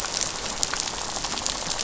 {"label": "biophony, rattle", "recorder": "SoundTrap 500"}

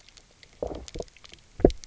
{"label": "biophony, low growl", "recorder": "SoundTrap 300"}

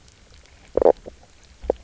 {"label": "biophony, knock croak", "recorder": "SoundTrap 300"}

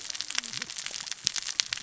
{"label": "biophony, cascading saw", "recorder": "SoundTrap 600 or HydroMoth"}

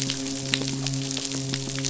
{"label": "biophony", "recorder": "SoundTrap 500"}
{"label": "biophony, midshipman", "recorder": "SoundTrap 500"}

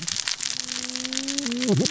{"label": "biophony, cascading saw", "recorder": "SoundTrap 600 or HydroMoth"}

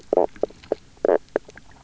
{"label": "biophony, knock croak", "recorder": "SoundTrap 300"}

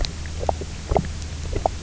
{"label": "biophony, knock croak", "recorder": "SoundTrap 300"}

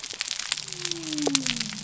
{"label": "biophony", "recorder": "SoundTrap 300"}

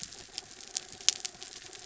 {"label": "anthrophony, mechanical", "recorder": "SoundTrap 300"}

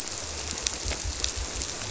{"label": "biophony", "recorder": "SoundTrap 300"}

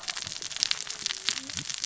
{"label": "biophony, cascading saw", "recorder": "SoundTrap 600 or HydroMoth"}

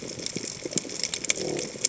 {"label": "biophony", "recorder": "HydroMoth"}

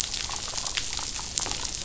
{"label": "biophony, damselfish", "recorder": "SoundTrap 500"}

